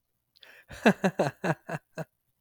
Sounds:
Laughter